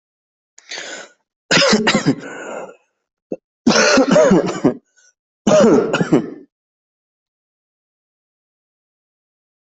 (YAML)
expert_labels:
- quality: good
  cough_type: dry
  dyspnea: false
  wheezing: false
  stridor: false
  choking: false
  congestion: false
  nothing: true
  diagnosis: COVID-19
  severity: mild
age: 18
gender: male
respiratory_condition: true
fever_muscle_pain: true
status: healthy